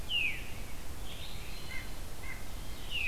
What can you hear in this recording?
Veery, White-breasted Nuthatch, Ovenbird